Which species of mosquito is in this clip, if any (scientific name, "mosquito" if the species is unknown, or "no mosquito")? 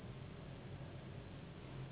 Anopheles gambiae s.s.